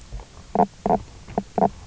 {"label": "biophony, knock croak", "recorder": "SoundTrap 300"}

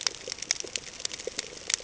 {"label": "ambient", "recorder": "HydroMoth"}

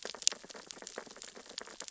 {"label": "biophony, sea urchins (Echinidae)", "recorder": "SoundTrap 600 or HydroMoth"}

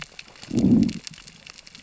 {"label": "biophony, growl", "recorder": "SoundTrap 600 or HydroMoth"}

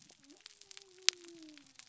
{"label": "biophony", "recorder": "SoundTrap 300"}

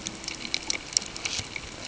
{"label": "ambient", "recorder": "HydroMoth"}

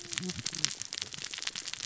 {"label": "biophony, cascading saw", "recorder": "SoundTrap 600 or HydroMoth"}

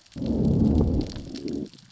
{"label": "biophony, growl", "recorder": "SoundTrap 600 or HydroMoth"}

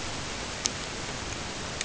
{"label": "ambient", "recorder": "HydroMoth"}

